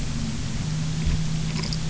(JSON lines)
{"label": "anthrophony, boat engine", "recorder": "SoundTrap 300"}